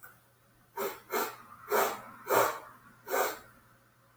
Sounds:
Sniff